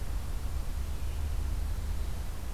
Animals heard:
forest ambience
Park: Acadia National Park